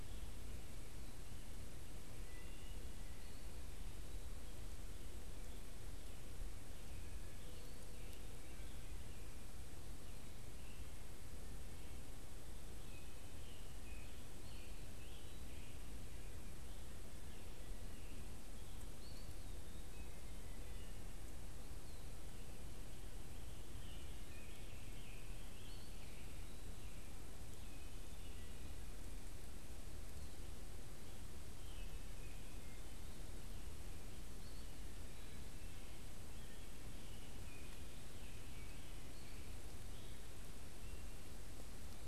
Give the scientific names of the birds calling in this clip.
unidentified bird, Piranga olivacea, Contopus virens, Hylocichla mustelina